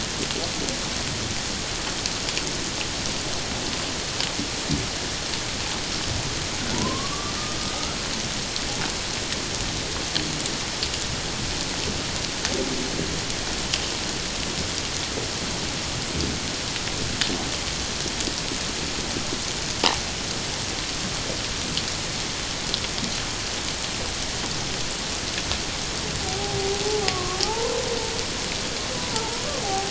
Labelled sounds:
6.7	7.3	humpback whale, 0.88 to 1.3 kHz
26.2	27.8	humpback whale, 0.78 to 1.2 kHz
29.0	29.8	humpback whale, 0.78 to 1.0 kHz

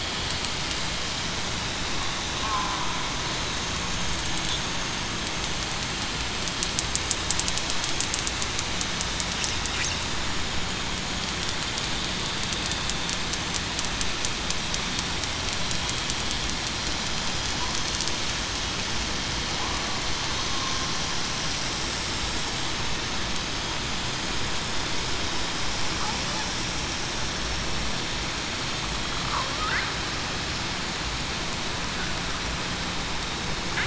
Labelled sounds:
2.4	2.8	killer whale, southern resident, 0.98 to 1.1 kHz

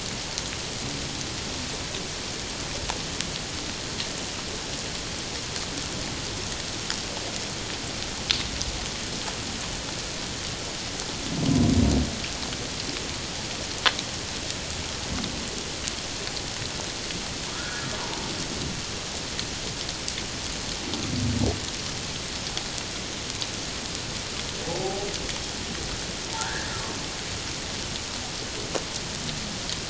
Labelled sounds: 17.5	17.9	humpback whale, 1.2 to 1.7 kHz
24.6	25.1	humpback whale, 0.78 to 0.91 kHz
26.4	26.7	humpback whale, 1.3 to 1.9 kHz

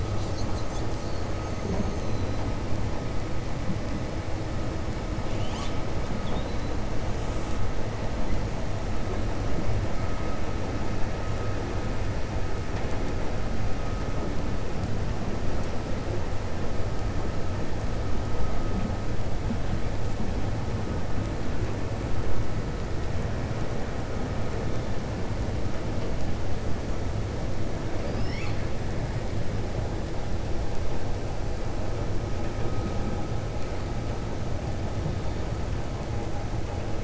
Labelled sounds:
1.4	2.1	killer whale, 5.5 to 7.3 kHz
6.1	6.7	killer whale, 3.3 to 4.1 kHz
28.0	28.6	killer whale, 1.2 to 6.9 kHz

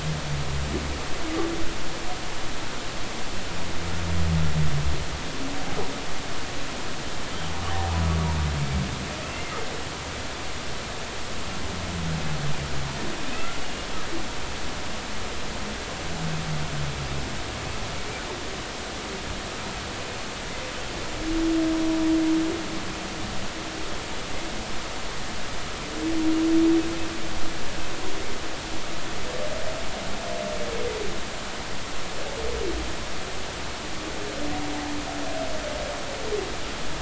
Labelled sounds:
9.2	9.5	humpback whale, 2.5 to 2.8 kHz
13.4	13.9	humpback whale, 1.2 to 2.9 kHz

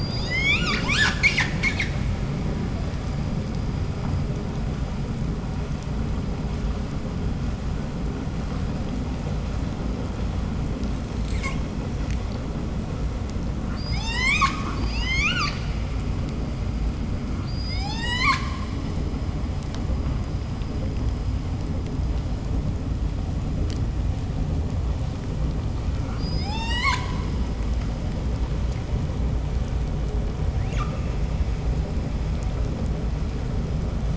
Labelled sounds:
0.9	2.0	killer whale, 0.20 to 8.0 kHz
11.2	11.7	killer whale, 0.75 to 8.0 kHz
13.6	15.7	killer whale, 0.46 to 8.0 kHz
17.2	19.4	killer whale, 0.52 to 8.0 kHz
25.9	27.7	killer whale, 0.55 to 8.0 kHz
30.5	31.3	killer whale, 0.75 to 8.0 kHz

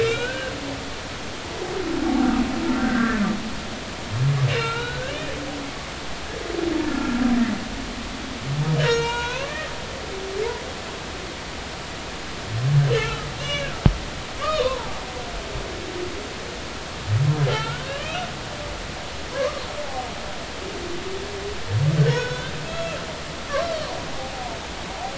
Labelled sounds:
0.0	0.5	humpback whale, 1.3 to 3.9 kHz
2.8	3.2	humpback whale, 1.5 to 2.0 kHz
4.5	5.1	humpback whale, 0.86 to 4.0 kHz
5.5	5.7	humpback whale, 2.7 to 2.9 kHz
6.9	7.2	humpback whale, 1.3 to 1.5 kHz
8.8	9.6	humpback whale, 0.86 to 4.3 kHz
12.8	14.9	humpback whale, 0.80 to 6.4 kHz
15.5	15.8	humpback whale, 3.5 to 3.8 kHz
17.5	18.2	humpback whale, 2.6 to 3.2 kHz
18.5	19.6	humpback whale, 0.96 to 1.9 kHz
22.1	23.0	humpback whale, 1.3 to 3.7 kHz

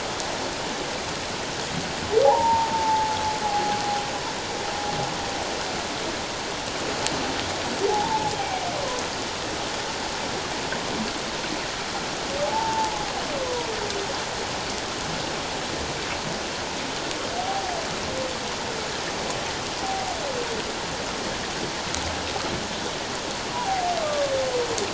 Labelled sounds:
2.2	3.2	humpback whale, 0.78 to 1.1 kHz
3.4	3.8	humpback whale, 0.78 to 0.88 kHz
7.9	8.3	humpback whale, 0.78 to 1.0 kHz
12.4	13.0	humpback whale, 0.78 to 0.97 kHz
17.4	17.7	humpback whale, 0.78 to 0.84 kHz
23.5	24.3	humpback whale, 0.78 to 1.3 kHz

